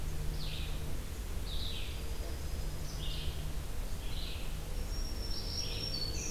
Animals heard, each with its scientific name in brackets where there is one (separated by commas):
Black-throated Green Warbler (Setophaga virens), Red-eyed Vireo (Vireo olivaceus), Eastern Wood-Pewee (Contopus virens), American Robin (Turdus migratorius)